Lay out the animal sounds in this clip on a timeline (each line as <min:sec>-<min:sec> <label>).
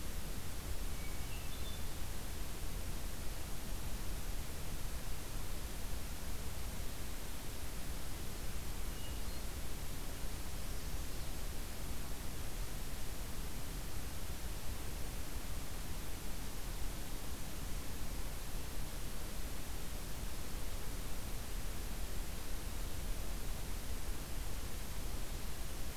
0:00.7-0:02.0 Hermit Thrush (Catharus guttatus)
0:08.9-0:09.6 Hermit Thrush (Catharus guttatus)